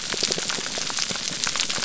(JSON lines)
{"label": "biophony", "recorder": "SoundTrap 300"}